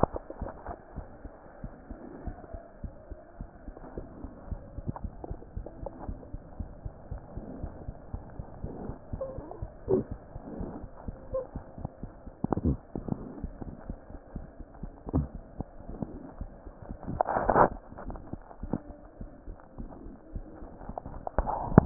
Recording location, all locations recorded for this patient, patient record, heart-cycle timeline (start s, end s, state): mitral valve (MV)
aortic valve (AV)+pulmonary valve (PV)+tricuspid valve (TV)+mitral valve (MV)
#Age: Child
#Sex: Female
#Height: 116.0 cm
#Weight: 19.0 kg
#Pregnancy status: False
#Murmur: Present
#Murmur locations: aortic valve (AV)+mitral valve (MV)+pulmonary valve (PV)+tricuspid valve (TV)
#Most audible location: pulmonary valve (PV)
#Systolic murmur timing: Early-systolic
#Systolic murmur shape: Plateau
#Systolic murmur grading: II/VI
#Systolic murmur pitch: Low
#Systolic murmur quality: Harsh
#Diastolic murmur timing: nan
#Diastolic murmur shape: nan
#Diastolic murmur grading: nan
#Diastolic murmur pitch: nan
#Diastolic murmur quality: nan
#Outcome: Abnormal
#Campaign: 2015 screening campaign
0.00	1.62	unannotated
1.62	1.72	S1
1.72	1.90	systole
1.90	2.00	S2
2.00	2.20	diastole
2.20	2.36	S1
2.36	2.52	systole
2.52	2.62	S2
2.62	2.82	diastole
2.82	2.92	S1
2.92	3.10	systole
3.10	3.20	S2
3.20	3.38	diastole
3.38	3.48	S1
3.48	3.66	systole
3.66	3.76	S2
3.76	3.96	diastole
3.96	4.08	S1
4.08	4.22	systole
4.22	4.32	S2
4.32	4.46	diastole
4.46	4.60	S1
4.60	4.76	systole
4.76	4.86	S2
4.86	5.02	diastole
5.02	5.14	S1
5.14	5.28	systole
5.28	5.38	S2
5.38	5.52	diastole
5.52	5.66	S1
5.66	5.78	systole
5.78	5.90	S2
5.90	6.06	diastole
6.06	6.20	S1
6.20	6.32	systole
6.32	6.42	S2
6.42	6.58	diastole
6.58	6.70	S1
6.70	6.84	systole
6.84	6.94	S2
6.94	7.10	diastole
7.10	7.22	S1
7.22	7.32	systole
7.32	7.44	S2
7.44	7.58	diastole
7.58	7.72	S1
7.72	7.84	systole
7.84	7.96	S2
7.96	8.12	diastole
8.12	8.24	S1
8.24	8.36	systole
8.36	8.46	S2
8.46	8.62	diastole
8.62	8.72	S1
8.72	8.84	systole
8.84	8.96	S2
8.96	9.12	diastole
9.12	9.21	S1
9.21	9.37	systole
9.37	9.45	S2
9.45	9.61	diastole
9.61	9.67	S1
9.67	21.86	unannotated